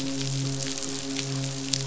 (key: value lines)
label: biophony, midshipman
recorder: SoundTrap 500